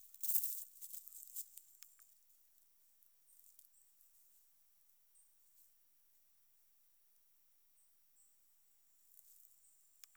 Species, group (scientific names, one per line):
Nemobius sylvestris
Orthoptera